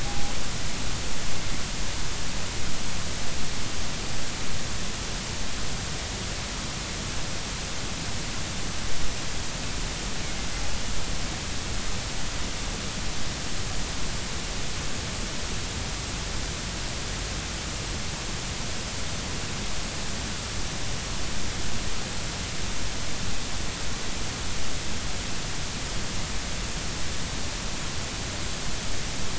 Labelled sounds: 0.0	0.3	killer whale, northern resident, G clan, 0.80 to 0.86 kHz

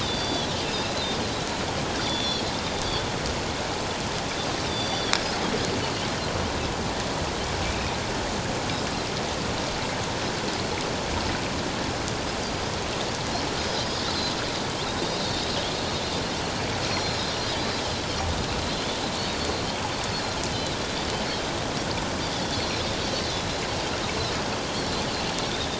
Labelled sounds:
0.0	1.1	Pacific white-sided dolphin, 3.2 to 5.0 kHz
2.0	2.5	Pacific white-sided dolphin, 3.2 to 5.8 kHz
4.6	5.2	Pacific white-sided dolphin, 3.2 to 5.9 kHz
12.4	12.7	Pacific white-sided dolphin, 4.7 to 5.0 kHz
16.9	17.2	Pacific white-sided dolphin, 4.0 to 4.4 kHz
22.3	22.6	Pacific white-sided dolphin, 3.3 to 3.6 kHz

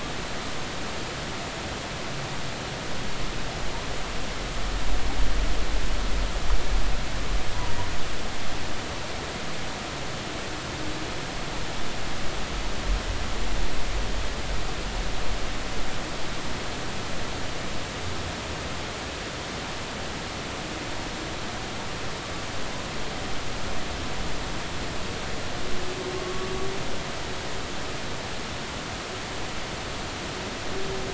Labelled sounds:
26.2	26.5	humpback whale, 1.1 to 1.2 kHz

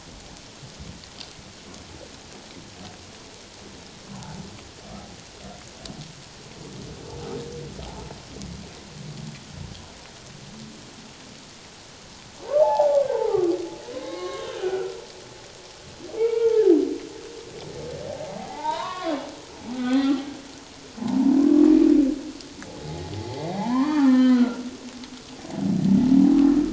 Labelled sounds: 12.6	13.5	humpback whale, 0.78 to 1.3 kHz
13.9	15.0	humpback whale, 1.0 to 2.2 kHz
16.2	16.7	humpback whale, 0.81 to 2.8 kHz
18.4	20.3	humpback whale, 0.78 to 3.9 kHz
21.4	21.7	humpback whale, 0.97 to 1.2 kHz
22.8	24.7	humpback whale, 0.78 to 4.2 kHz

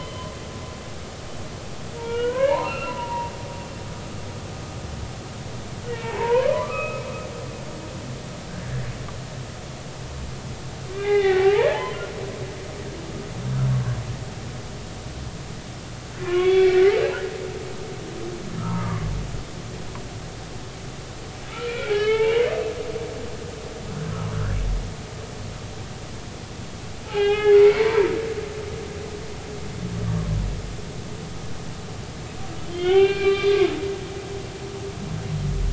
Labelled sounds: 2.0	3.3	humpback whale, 0.86 to 4.2 kHz
5.9	7.0	humpback whale, 0.83 to 2.7 kHz
10.9	12.0	humpback whale, 0.80 to 3.7 kHz
16.2	16.8	humpback whale, 0.99 to 3.5 kHz
18.6	19.1	humpback whale, 1.1 to 1.4 kHz
21.5	22.5	humpback whale, 0.83 to 4.4 kHz
27.0	28.6	humpback whale, 0.80 to 3.4 kHz
32.7	33.7	humpback whale, 0.80 to 3.6 kHz

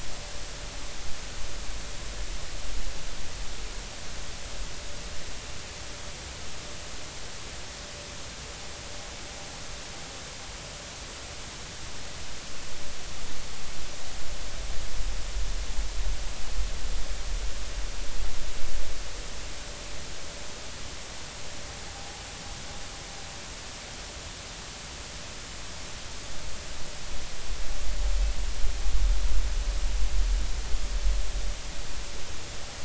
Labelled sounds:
21.9	22.2	vessel noise, 0.80 to 0.86 kHz

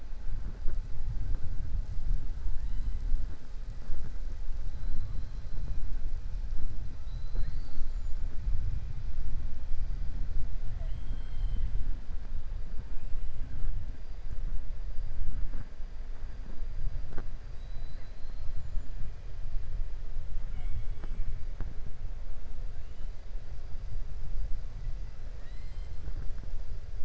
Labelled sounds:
2.5	3.0	killer whale, 0.94 to 4.1 kHz
17.5	18.5	killer whale, 3.8 to 5.0 kHz
25.3	25.9	killer whale, 1.3 to 8.0 kHz

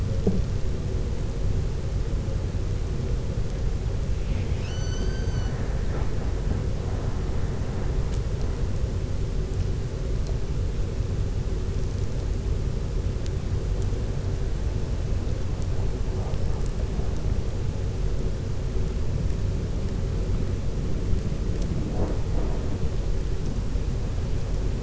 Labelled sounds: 4.1	5.7	killer whale, 1.0 to 6.3 kHz

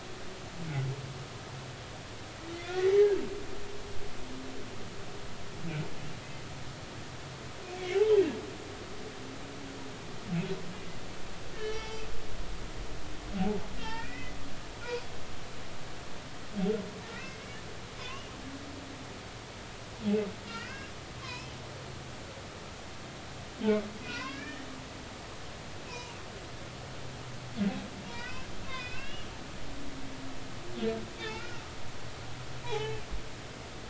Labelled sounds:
2.7	3.1	humpback whale, 1.7 to 2.1 kHz
7.9	8.2	humpback whale, 2.8 to 3.2 kHz
11.6	12.1	humpback whale, 0.83 to 5.8 kHz
13.8	14.4	humpback whale, 0.83 to 3.4 kHz
17.1	17.6	humpback whale, 1.3 to 2.7 kHz
18.0	18.3	humpback whale, 0.96 to 2.9 kHz
20.4	21.5	humpback whale, 0.93 to 5.3 kHz
24.0	24.7	humpback whale, 0.93 to 2.8 kHz
25.9	26.2	humpback whale, 0.90 to 1.1 kHz
28.1	30.3	humpback whale, 0.90 to 3.8 kHz
31.2	31.6	humpback whale, 1.2 to 3.7 kHz
32.6	33.0	humpback whale, 0.80 to 4.0 kHz

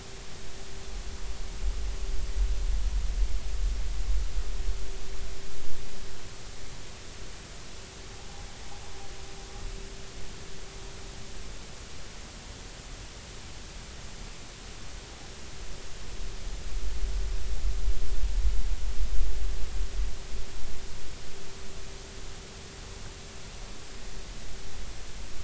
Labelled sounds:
8.1	8.4	noise likely from the mooring, 0.80 to 0.96 kHz

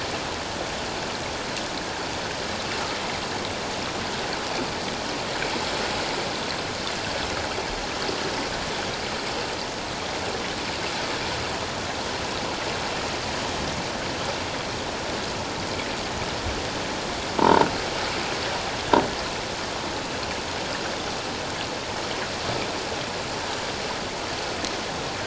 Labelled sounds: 17.4	17.7	croaking sound likely from a nearby submerged object, 0.84 to 1.1 kHz

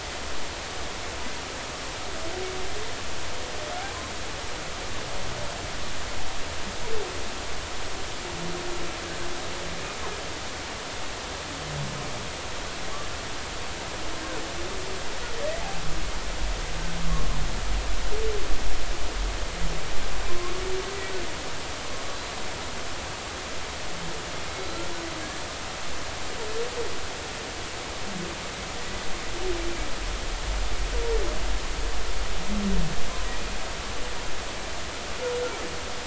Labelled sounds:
22.1	22.4	humpback whale, 3.9 to 4.1 kHz
24.5	24.8	humpback whale, 3.9 to 4.3 kHz

